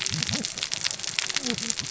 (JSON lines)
{"label": "biophony, cascading saw", "recorder": "SoundTrap 600 or HydroMoth"}